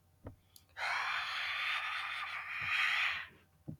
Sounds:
Sigh